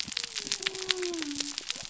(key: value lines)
label: biophony
recorder: SoundTrap 300